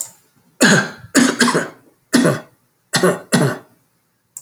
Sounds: Cough